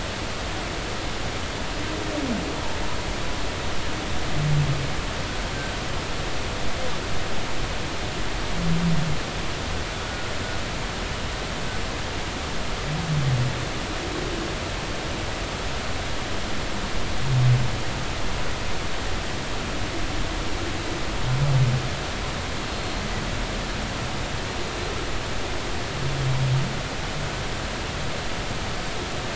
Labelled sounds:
10.0	10.3	humpback whale, 1.4 to 1.5 kHz

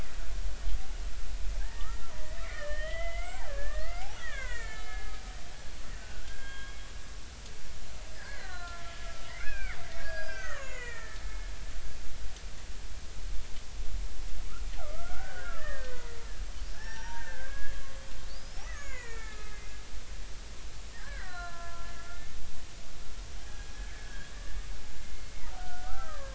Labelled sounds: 1.6	5.1	killer whale, Bigg's (transient), 0.80 to 3.2 kHz
6.0	6.8	killer whale, Bigg's (transient), 0.99 to 3.3 kHz
8.2	11.5	killer whale, Bigg's (transient), 0.99 to 7.0 kHz
14.8	16.2	killer whale, Bigg's (transient), 1.0 to 2.0 kHz
16.7	17.8	killer whale, Bigg's (transient), 0.80 to 5.9 kHz
18.3	19.7	killer whale, Bigg's (transient), 0.93 to 7.0 kHz
20.9	21.9	killer whale, Bigg's (transient), 0.96 to 4.1 kHz
23.4	24.3	killer whale, Bigg's (transient), 1.5 to 1.9 kHz
25.1	26.3	killer whale, Bigg's (transient), 1.0 to 2.2 kHz

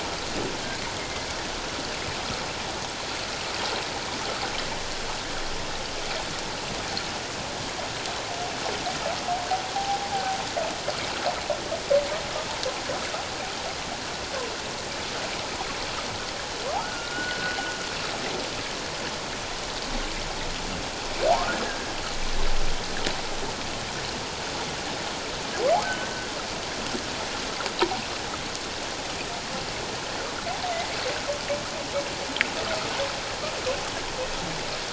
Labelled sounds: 1.0	1.3	humpback whale, 1.9 to 2.2 kHz
9.7	10.0	humpback whale, 0.78 to 0.88 kHz
16.8	17.6	humpback whale, 1.2 to 1.5 kHz
21.3	21.6	humpback whale, 0.78 to 1.5 kHz
25.8	26.1	humpback whale, 1.4 to 1.6 kHz

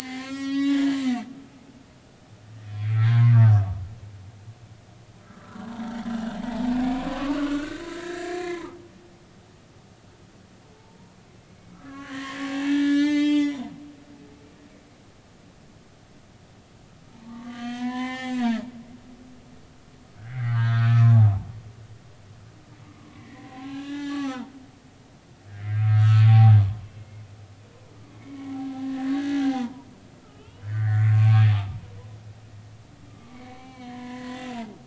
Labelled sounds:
0.0	1.9	humpback whale, 0.80 to 7.8 kHz
2.8	3.3	humpback whale, 0.93 to 2.5 kHz
5.2	5.7	humpback whale, 1.2 to 1.5 kHz
6.1	9.2	humpback whale, 0.80 to 3.0 kHz
10.6	11.0	humpback whale, 0.83 to 0.96 kHz
11.7	13.7	humpback whale, 0.80 to 8.0 kHz
17.1	18.7	humpback whale, 0.80 to 7.0 kHz
20.2	21.2	humpback whale, 0.86 to 2.6 kHz
22.9	24.5	humpback whale, 0.80 to 4.1 kHz
25.6	26.6	humpback whale, 0.80 to 2.2 kHz
27.0	27.2	humpback whale, 2.1 to 2.2 kHz
28.2	29.9	humpback whale, 0.80 to 2.3 kHz
30.2	31.9	humpback whale, 0.80 to 3.4 kHz
33.1	34.8	humpback whale, 0.80 to 4.4 kHz

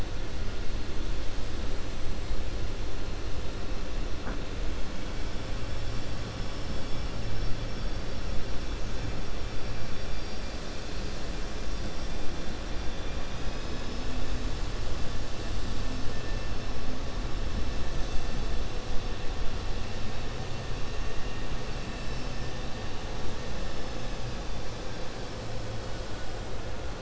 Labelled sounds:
5.9	7.0	vessel noise, 4.1 to 5.8 kHz
9.8	10.8	vessel noise, 4.3 to 5.7 kHz

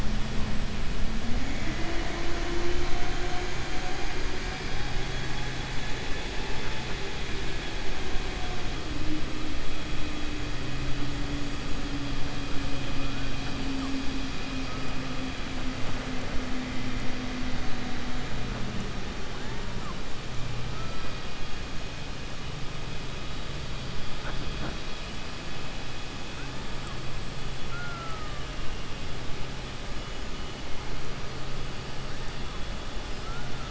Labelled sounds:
27.6	28.4	killer whale, 0.65 to 2.1 kHz
33.2	33.7	killer whale, 0.71 to 1.9 kHz

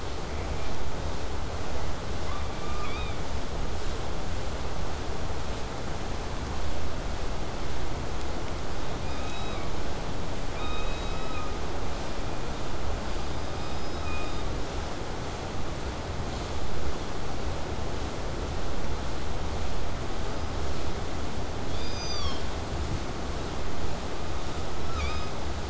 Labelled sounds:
0.3	0.8	killer whale, southern resident, J pod, call S04, 0.22 to 2.8 kHz
2.2	3.2	killer whale, southern resident, K pod, call S17, 0.82 to 5.4 kHz
10.5	11.6	killer whale, southern resident, K pod, call S16, 0.95 to 6.4 kHz
21.7	22.5	killer whale, southern resident, K pod, call S16, 0.78 to 8.0 kHz
24.9	25.4	killer whale, southern resident, 0.82 to 7.1 kHz

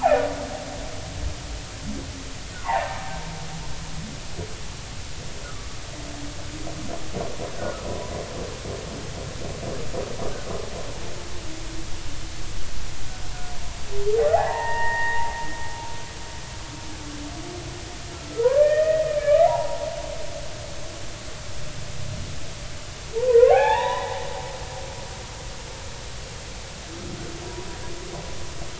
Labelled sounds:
2.6	3.0	humpback whale, 0.80 to 1.2 kHz
5.4	5.7	humpback whale, 1.1 to 1.5 kHz
7.6	8.1	humpback whale, 0.93 to 1.5 kHz
14.2	15.3	humpback whale, 0.80 to 2.0 kHz
18.1	19.8	humpback whale, 0.80 to 3.1 kHz
23.1	24.2	humpback whale, 0.80 to 3.9 kHz

